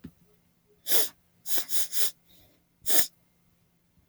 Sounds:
Sniff